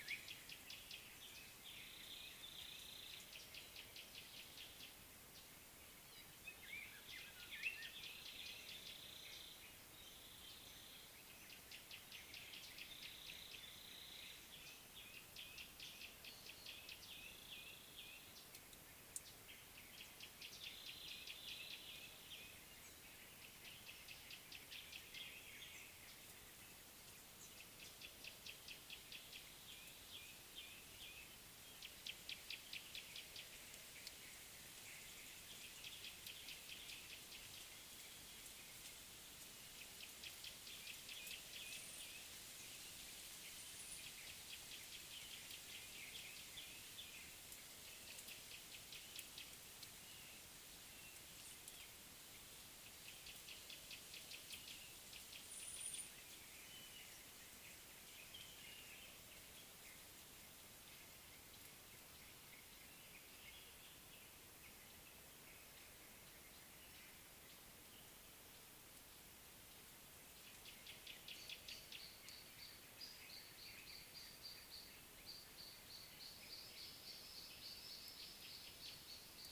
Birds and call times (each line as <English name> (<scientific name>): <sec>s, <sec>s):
Chestnut-throated Apalis (Apalis porphyrolaema): 2.1s, 9.1s
Cape Robin-Chat (Cossypha caffra): 7.6s
Gray-backed Camaroptera (Camaroptera brevicaudata): 12.1s, 28.5s, 40.3s
Black-collared Apalis (Oreolais pulcher): 30.2s